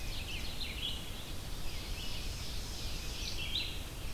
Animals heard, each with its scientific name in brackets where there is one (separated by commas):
Rose-breasted Grosbeak (Pheucticus ludovicianus), Ovenbird (Seiurus aurocapilla), Red-eyed Vireo (Vireo olivaceus)